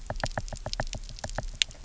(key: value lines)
label: biophony, knock
recorder: SoundTrap 300